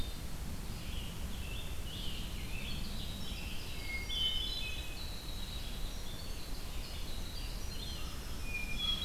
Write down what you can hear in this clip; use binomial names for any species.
Vireo olivaceus, Piranga olivacea, Troglodytes hiemalis, Catharus guttatus, Seiurus aurocapilla